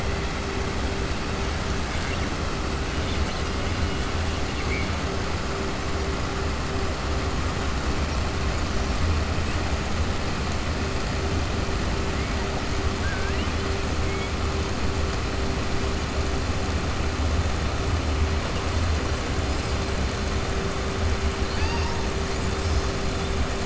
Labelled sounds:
12.9	13.5	killer whale, southern resident, 1.5 to 3.4 kHz

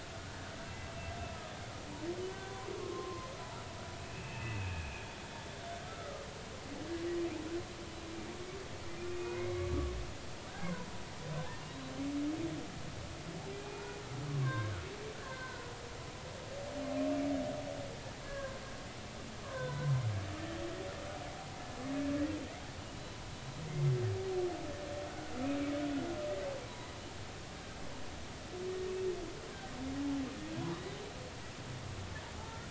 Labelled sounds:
2.8	3.3	humpback whale, 0.99 to 1.2 kHz
4.1	4.9	humpback whale, 2.4 to 2.8 kHz
5.8	6.3	humpback whale, 1.1 to 1.5 kHz
9.1	9.7	humpback whale, 2.0 to 2.5 kHz
10.5	10.9	humpback whale, 0.93 to 1.7 kHz
11.7	12.0	humpback whale, 3.8 to 4.0 kHz
13.5	14.7	humpback whale, 0.99 to 2.5 kHz
15.2	15.7	humpback whale, 1.4 to 1.8 kHz
18.2	18.6	humpback whale, 0.99 to 1.7 kHz
19.4	19.9	humpback whale, 0.93 to 1.6 kHz
26.7	26.9	humpback whale, 0.90 to 1.1 kHz
32.4	32.6	humpback whale, 0.80 to 0.96 kHz

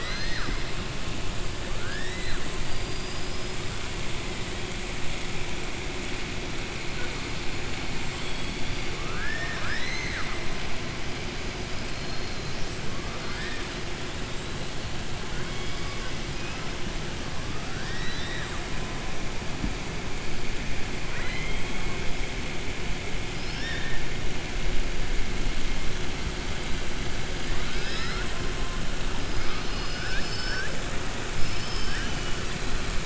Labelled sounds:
8.9	10.4	killer whale, southern resident, 0.69 to 7.8 kHz
13.1	13.7	killer whale, southern resident, 0.53 to 5.1 kHz
21.0	21.8	killer whale, southern resident, 0.98 to 4.2 kHz
31.4	32.4	killer whale, southern resident, 1.5 to 5.9 kHz

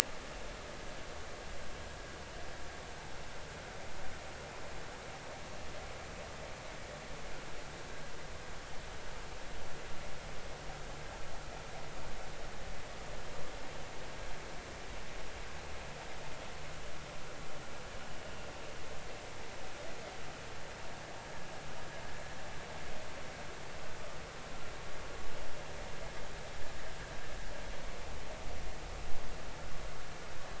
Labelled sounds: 21.2	21.5	vessel noise, 1.6 to 1.8 kHz

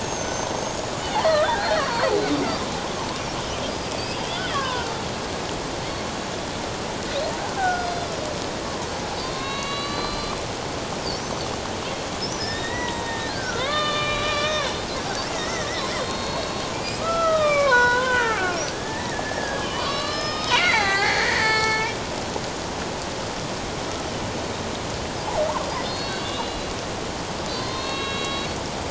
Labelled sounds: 0.0	2.1	killer whale, Bigg's (transient), 0.91 to 6.9 kHz
3.9	4.9	killer whale, Bigg's (transient), 0.94 to 5.0 kHz
7.6	8.1	killer whale, Bigg's (transient), 1.4 to 5.0 kHz
8.6	8.9	killer whale, Bigg's (transient), 0.91 to 1.2 kHz
9.2	10.4	killer whale, Bigg's (transient), 1.0 to 4.8 kHz
12.4	22.0	killer whale, Bigg's (transient), 0.78 to 7.5 kHz
25.8	26.7	killer whale, Bigg's (transient), 2.8 to 4.5 kHz
27.5	28.6	killer whale, Bigg's (transient), 0.97 to 4.5 kHz

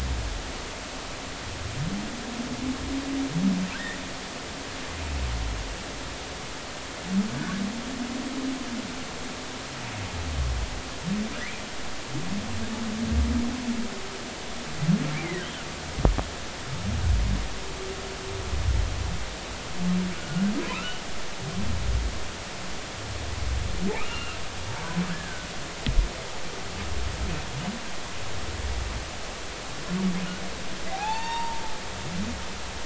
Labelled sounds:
7.3	7.6	humpback whale, 1.4 to 1.8 kHz
20.6	21.0	humpback whale, 1.2 to 3.0 kHz
24.0	24.4	humpback whale, 2.6 to 2.9 kHz
25.1	25.5	humpback whale, 1.4 to 1.8 kHz
30.9	31.6	humpback whale, 0.80 to 4.7 kHz

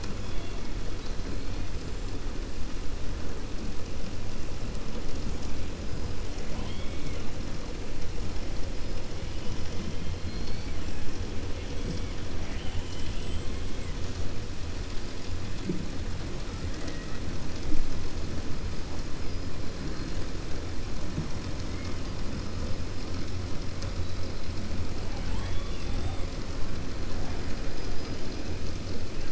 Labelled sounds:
6.4	7.2	killer whale, 0.60 to 4.2 kHz
12.3	13.5	killer whale, 1.6 to 3.5 kHz
16.7	17.2	killer whale, 0.52 to 2.9 kHz
25.2	26.2	killer whale, 6.9 to 8.0 kHz

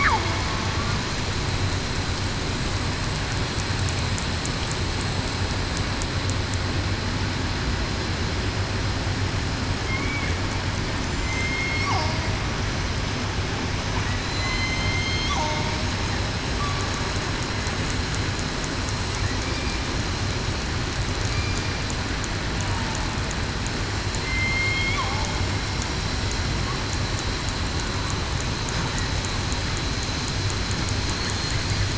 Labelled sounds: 11.2	11.9	killer whale, southern resident, 2.0 to 8.0 kHz
14.2	15.3	killer whale, southern resident, 4.0 to 7.2 kHz
24.2	25.0	killer whale, southern resident, 2.0 to 4.3 kHz

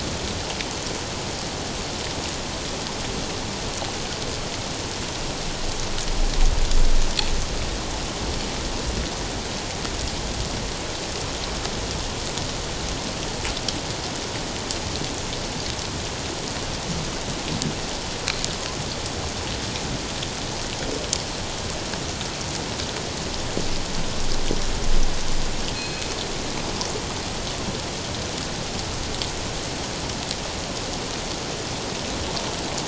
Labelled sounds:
25.7	26.0	killer whale, northern resident, G clan, 2.4 to 4.3 kHz

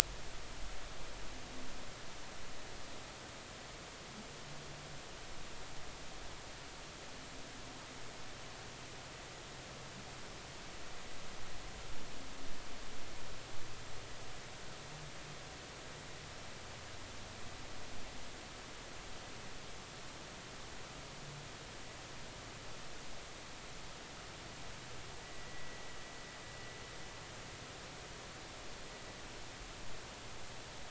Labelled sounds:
25.3	25.8	vessel noise, 1.9 to 2.0 kHz

